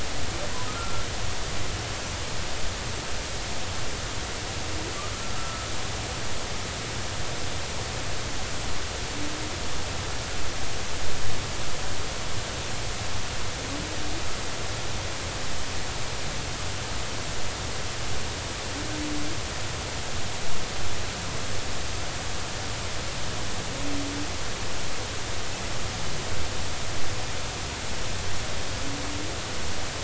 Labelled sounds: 0.7	1.0	humpback whale, 1.2 to 1.4 kHz
5.4	5.7	humpback whale, 1.2 to 1.4 kHz

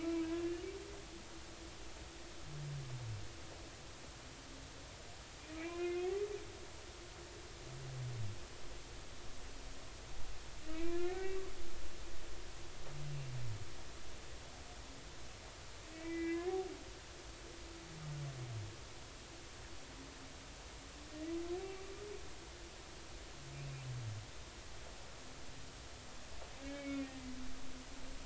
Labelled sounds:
0.4	0.7	humpback whale, 2.7 to 2.9 kHz
5.6	6.0	humpback whale, 0.96 to 2.9 kHz
10.7	11.4	humpback whale, 1.7 to 2.4 kHz
15.9	16.5	humpback whale, 1.6 to 2.4 kHz
26.6	27.1	humpback whale, 2.1 to 2.3 kHz

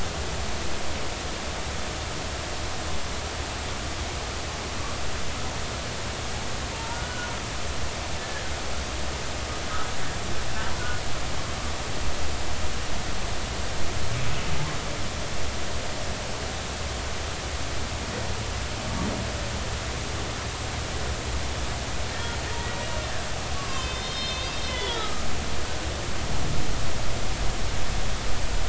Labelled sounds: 6.7	7.3	humpback whale, 0.86 to 1.5 kHz
8.2	8.4	humpback whale, 1.6 to 1.8 kHz
22.1	22.4	humpback whale, 1.6 to 1.9 kHz
23.5	25.3	humpback whale, 0.99 to 5.3 kHz

